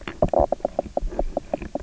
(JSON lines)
{"label": "biophony, knock croak", "recorder": "SoundTrap 300"}